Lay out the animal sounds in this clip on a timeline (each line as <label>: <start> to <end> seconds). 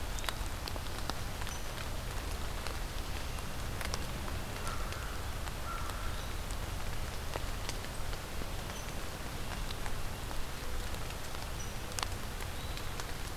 American Crow (Corvus brachyrhynchos): 4.5 to 6.3 seconds